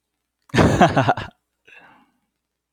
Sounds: Laughter